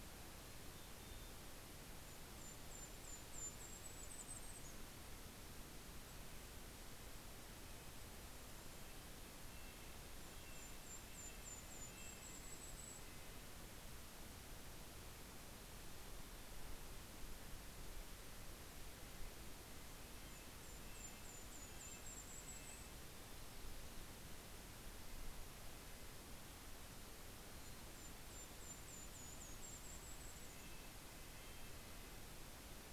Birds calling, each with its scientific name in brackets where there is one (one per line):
Mountain Chickadee (Poecile gambeli)
Golden-crowned Kinglet (Regulus satrapa)
Red-breasted Nuthatch (Sitta canadensis)